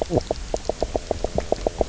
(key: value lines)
label: biophony, knock croak
recorder: SoundTrap 300